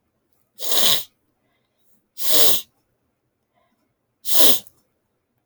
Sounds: Sniff